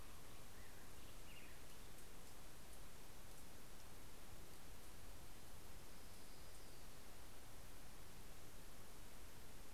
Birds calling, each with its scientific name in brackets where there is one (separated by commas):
Black-headed Grosbeak (Pheucticus melanocephalus), Orange-crowned Warbler (Leiothlypis celata)